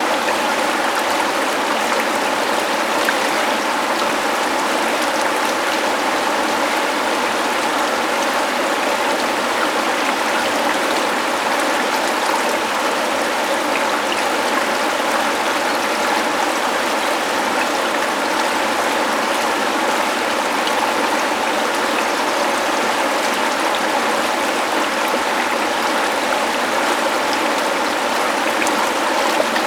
Does the water constantly run?
yes